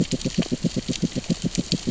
{"label": "biophony, grazing", "recorder": "SoundTrap 600 or HydroMoth"}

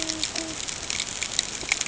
{"label": "ambient", "recorder": "HydroMoth"}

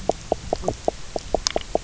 {"label": "biophony, knock croak", "recorder": "SoundTrap 300"}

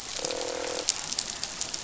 {"label": "biophony, croak", "recorder": "SoundTrap 500"}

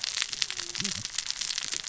{"label": "biophony, cascading saw", "recorder": "SoundTrap 600 or HydroMoth"}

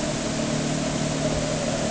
{"label": "anthrophony, boat engine", "recorder": "HydroMoth"}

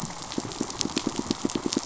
{"label": "biophony, pulse", "recorder": "SoundTrap 500"}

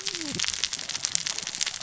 {"label": "biophony, cascading saw", "recorder": "SoundTrap 600 or HydroMoth"}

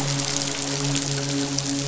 {"label": "biophony, midshipman", "recorder": "SoundTrap 500"}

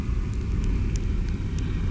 {"label": "anthrophony, boat engine", "recorder": "SoundTrap 300"}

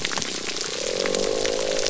{"label": "biophony", "recorder": "SoundTrap 300"}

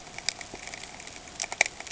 {"label": "ambient", "recorder": "HydroMoth"}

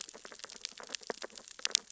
{"label": "biophony, sea urchins (Echinidae)", "recorder": "SoundTrap 600 or HydroMoth"}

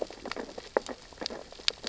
{"label": "biophony, sea urchins (Echinidae)", "recorder": "SoundTrap 600 or HydroMoth"}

